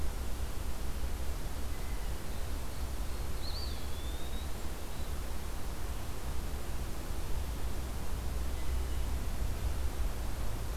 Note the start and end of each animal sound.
3.3s-4.6s: Eastern Wood-Pewee (Contopus virens)

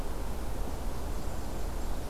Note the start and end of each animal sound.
0.6s-2.0s: Black-capped Chickadee (Poecile atricapillus)

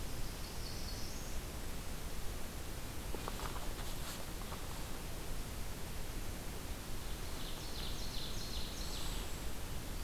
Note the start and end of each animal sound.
0.0s-1.5s: Northern Parula (Setophaga americana)
6.8s-9.5s: Ovenbird (Seiurus aurocapilla)

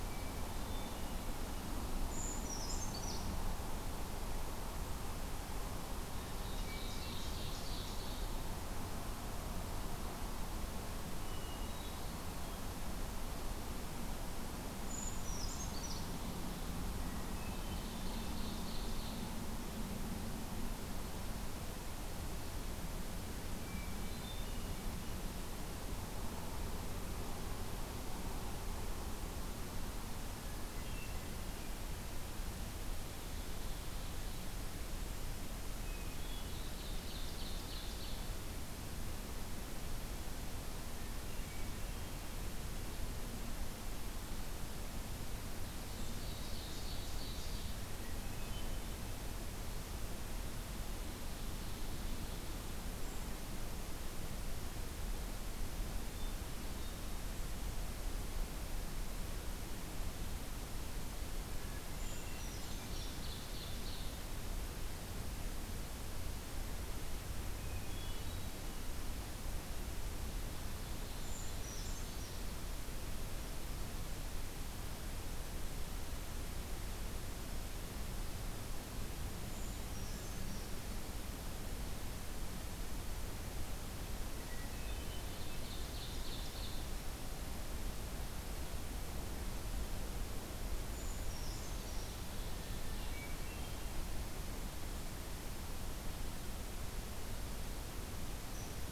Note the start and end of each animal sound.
0.1s-1.2s: Hermit Thrush (Catharus guttatus)
2.0s-3.4s: Brown Creeper (Certhia americana)
6.2s-8.3s: Ovenbird (Seiurus aurocapilla)
11.2s-12.2s: Hermit Thrush (Catharus guttatus)
14.7s-16.1s: Brown Creeper (Certhia americana)
17.0s-18.5s: Hermit Thrush (Catharus guttatus)
17.5s-19.3s: Ovenbird (Seiurus aurocapilla)
23.6s-24.8s: Hermit Thrush (Catharus guttatus)
30.3s-31.3s: Hermit Thrush (Catharus guttatus)
33.0s-34.6s: Ovenbird (Seiurus aurocapilla)
35.8s-36.7s: Hermit Thrush (Catharus guttatus)
36.1s-38.3s: Ovenbird (Seiurus aurocapilla)
40.8s-42.1s: Hermit Thrush (Catharus guttatus)
45.7s-47.8s: Ovenbird (Seiurus aurocapilla)
47.9s-49.0s: Hermit Thrush (Catharus guttatus)
51.0s-52.6s: Ovenbird (Seiurus aurocapilla)
53.0s-53.3s: Brown Creeper (Certhia americana)
55.9s-57.3s: Hermit Thrush (Catharus guttatus)
61.5s-62.7s: Hermit Thrush (Catharus guttatus)
62.0s-63.2s: Brown Creeper (Certhia americana)
62.0s-64.2s: Ovenbird (Seiurus aurocapilla)
67.5s-68.6s: Hermit Thrush (Catharus guttatus)
71.1s-72.5s: Brown Creeper (Certhia americana)
79.5s-80.8s: Brown Creeper (Certhia americana)
84.4s-85.4s: Hermit Thrush (Catharus guttatus)
85.2s-86.8s: Ovenbird (Seiurus aurocapilla)
90.9s-92.2s: Brown Creeper (Certhia americana)
91.7s-93.2s: Ovenbird (Seiurus aurocapilla)
92.9s-94.0s: Hermit Thrush (Catharus guttatus)
98.4s-98.7s: Brown Creeper (Certhia americana)

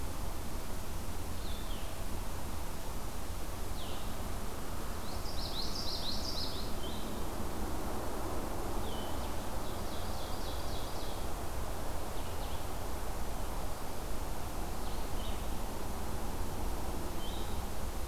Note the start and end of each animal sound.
0.0s-18.1s: Red-eyed Vireo (Vireo olivaceus)
5.0s-6.7s: Common Yellowthroat (Geothlypis trichas)
9.4s-11.3s: Ovenbird (Seiurus aurocapilla)

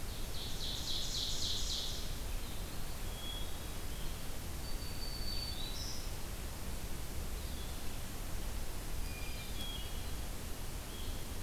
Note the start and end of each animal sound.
0.0s-2.4s: Ovenbird (Seiurus aurocapilla)
0.0s-11.4s: Blue-headed Vireo (Vireo solitarius)
2.5s-3.8s: Eastern Wood-Pewee (Contopus virens)
2.9s-3.9s: Hermit Thrush (Catharus guttatus)
4.4s-6.2s: Black-throated Green Warbler (Setophaga virens)
7.0s-8.1s: Eastern Wood-Pewee (Contopus virens)
8.7s-10.4s: Hermit Thrush (Catharus guttatus)

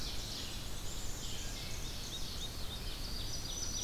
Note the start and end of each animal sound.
0.0s-2.5s: Ovenbird (Seiurus aurocapilla)
0.0s-3.8s: Red-eyed Vireo (Vireo olivaceus)
0.8s-2.1s: Black-capped Chickadee (Poecile atricapillus)
1.2s-2.0s: Wood Thrush (Hylocichla mustelina)
1.9s-3.3s: Black-throated Blue Warbler (Setophaga caerulescens)
2.9s-3.8s: Ovenbird (Seiurus aurocapilla)
3.1s-3.8s: Black-throated Green Warbler (Setophaga virens)

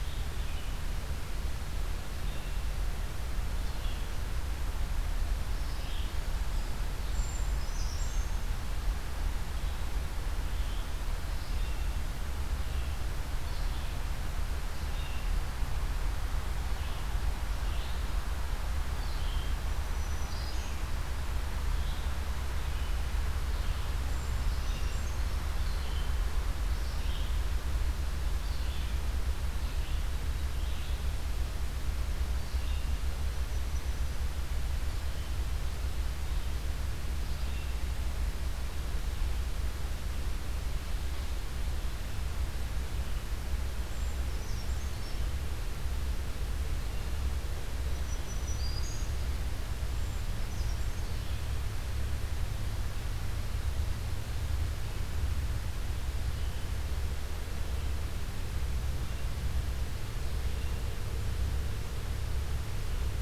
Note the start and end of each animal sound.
0.0s-4.3s: Red-eyed Vireo (Vireo olivaceus)
5.5s-33.2s: Red-eyed Vireo (Vireo olivaceus)
7.0s-8.7s: Brown Creeper (Certhia americana)
19.5s-21.0s: Black-throated Green Warbler (Setophaga virens)
23.9s-26.1s: Brown Creeper (Certhia americana)
33.3s-34.2s: Golden-crowned Kinglet (Regulus satrapa)
43.8s-45.4s: Brown Creeper (Certhia americana)
47.6s-49.3s: Black-throated Green Warbler (Setophaga virens)
49.7s-51.5s: Brown Creeper (Certhia americana)

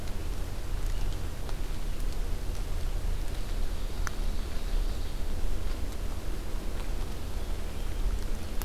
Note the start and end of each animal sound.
3.3s-5.2s: Ovenbird (Seiurus aurocapilla)

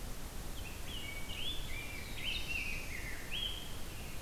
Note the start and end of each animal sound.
0.5s-4.2s: Rose-breasted Grosbeak (Pheucticus ludovicianus)
1.6s-3.3s: Black-throated Blue Warbler (Setophaga caerulescens)

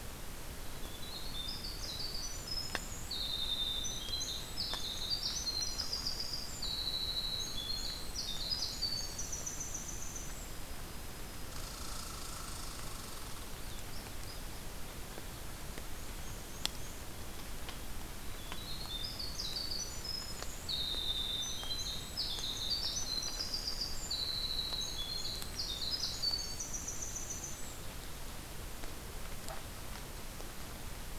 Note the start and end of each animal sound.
0.6s-10.7s: Winter Wren (Troglodytes hiemalis)
11.5s-13.4s: Red Squirrel (Tamiasciurus hudsonicus)
13.1s-14.7s: unidentified call
15.5s-17.1s: Black-and-white Warbler (Mniotilta varia)
18.3s-27.8s: Winter Wren (Troglodytes hiemalis)

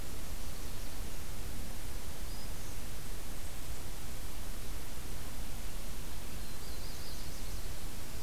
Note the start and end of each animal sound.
2.0s-2.8s: Black-throated Green Warbler (Setophaga virens)
6.3s-7.9s: Nashville Warbler (Leiothlypis ruficapilla)

